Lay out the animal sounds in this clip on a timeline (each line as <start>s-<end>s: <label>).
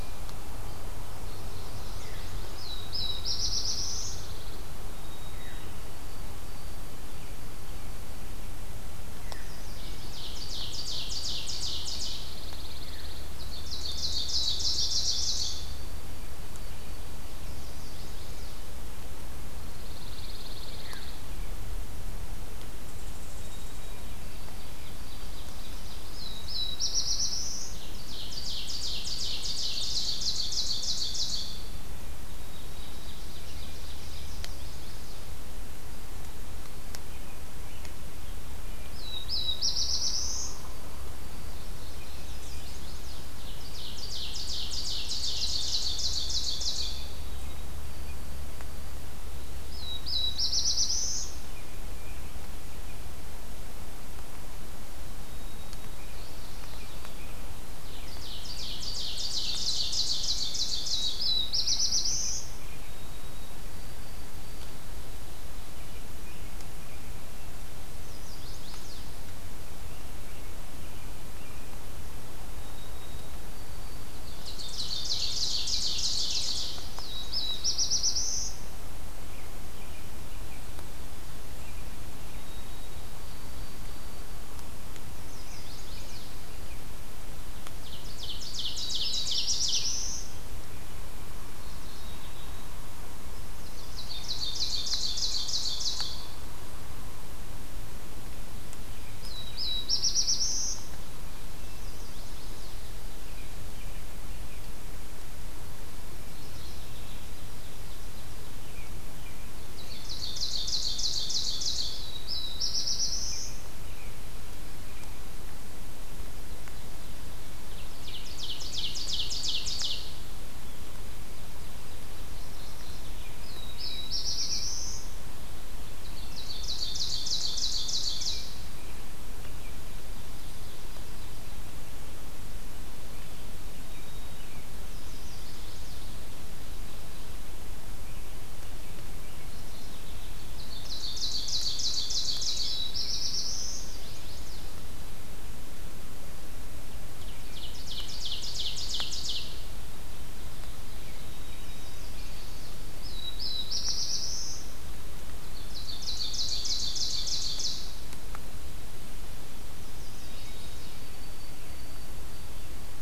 1.0s-2.2s: Mourning Warbler (Geothlypis philadelphia)
2.5s-4.3s: Black-throated Blue Warbler (Setophaga caerulescens)
3.3s-4.7s: Pine Warbler (Setophaga pinus)
4.7s-8.8s: White-throated Sparrow (Zonotrichia albicollis)
9.4s-12.3s: Ovenbird (Seiurus aurocapilla)
11.9s-13.4s: Pine Warbler (Setophaga pinus)
13.3s-15.7s: Ovenbird (Seiurus aurocapilla)
15.3s-18.2s: White-throated Sparrow (Zonotrichia albicollis)
17.3s-18.7s: Chestnut-sided Warbler (Setophaga pensylvanica)
19.5s-21.4s: Pine Warbler (Setophaga pinus)
23.2s-26.4s: White-throated Sparrow (Zonotrichia albicollis)
25.8s-27.8s: Black-throated Blue Warbler (Setophaga caerulescens)
27.6s-31.8s: Ovenbird (Seiurus aurocapilla)
32.2s-34.1s: White-throated Sparrow (Zonotrichia albicollis)
32.7s-34.4s: Ovenbird (Seiurus aurocapilla)
34.1s-35.3s: Chestnut-sided Warbler (Setophaga pensylvanica)
38.8s-40.7s: Black-throated Blue Warbler (Setophaga caerulescens)
40.6s-42.0s: White-throated Sparrow (Zonotrichia albicollis)
41.5s-42.6s: Mourning Warbler (Geothlypis philadelphia)
42.1s-43.4s: Chestnut-sided Warbler (Setophaga pensylvanica)
43.5s-47.1s: Ovenbird (Seiurus aurocapilla)
47.1s-49.1s: White-throated Sparrow (Zonotrichia albicollis)
49.5s-51.6s: Black-throated Blue Warbler (Setophaga caerulescens)
55.0s-57.3s: White-throated Sparrow (Zonotrichia albicollis)
56.0s-57.3s: Mourning Warbler (Geothlypis philadelphia)
57.8s-61.3s: Ovenbird (Seiurus aurocapilla)
60.8s-62.5s: Black-throated Blue Warbler (Setophaga caerulescens)
62.7s-64.9s: White-throated Sparrow (Zonotrichia albicollis)
65.7s-67.3s: American Robin (Turdus migratorius)
68.0s-69.0s: Chestnut-sided Warbler (Setophaga pensylvanica)
69.9s-71.9s: American Robin (Turdus migratorius)
72.4s-74.8s: White-throated Sparrow (Zonotrichia albicollis)
74.2s-77.0s: Ovenbird (Seiurus aurocapilla)
76.6s-78.7s: Black-throated Blue Warbler (Setophaga caerulescens)
79.2s-80.7s: American Robin (Turdus migratorius)
81.5s-82.5s: American Robin (Turdus migratorius)
82.2s-84.5s: White-throated Sparrow (Zonotrichia albicollis)
85.0s-86.3s: Chestnut-sided Warbler (Setophaga pensylvanica)
85.4s-86.9s: American Robin (Turdus migratorius)
87.6s-90.0s: Ovenbird (Seiurus aurocapilla)
88.8s-90.4s: Black-throated Blue Warbler (Setophaga caerulescens)
91.4s-92.7s: Mourning Warbler (Geothlypis philadelphia)
93.7s-96.3s: Ovenbird (Seiurus aurocapilla)
93.9s-95.5s: American Robin (Turdus migratorius)
99.0s-100.8s: Black-throated Blue Warbler (Setophaga caerulescens)
101.5s-102.8s: Chestnut-sided Warbler (Setophaga pensylvanica)
103.0s-104.8s: American Robin (Turdus migratorius)
106.1s-107.2s: Mourning Warbler (Geothlypis philadelphia)
107.2s-108.5s: Ovenbird (Seiurus aurocapilla)
108.5s-110.0s: American Robin (Turdus migratorius)
109.7s-112.0s: Ovenbird (Seiurus aurocapilla)
111.4s-113.8s: Black-throated Blue Warbler (Setophaga caerulescens)
117.7s-120.1s: Ovenbird (Seiurus aurocapilla)
122.2s-123.3s: Mourning Warbler (Geothlypis philadelphia)
123.2s-125.3s: Black-throated Blue Warbler (Setophaga caerulescens)
125.9s-128.7s: Ovenbird (Seiurus aurocapilla)
133.7s-134.7s: White-throated Sparrow (Zonotrichia albicollis)
134.8s-136.1s: Chestnut-sided Warbler (Setophaga pensylvanica)
139.3s-140.4s: Mourning Warbler (Geothlypis philadelphia)
140.3s-143.0s: Ovenbird (Seiurus aurocapilla)
142.7s-144.3s: Black-throated Blue Warbler (Setophaga caerulescens)
143.6s-144.6s: Chestnut-sided Warbler (Setophaga pensylvanica)
147.1s-149.7s: Ovenbird (Seiurus aurocapilla)
151.1s-153.3s: White-throated Sparrow (Zonotrichia albicollis)
151.5s-152.9s: Chestnut-sided Warbler (Setophaga pensylvanica)
152.8s-154.8s: Black-throated Blue Warbler (Setophaga caerulescens)
155.4s-158.2s: Ovenbird (Seiurus aurocapilla)
159.7s-161.0s: Chestnut-sided Warbler (Setophaga pensylvanica)
160.0s-163.0s: White-throated Sparrow (Zonotrichia albicollis)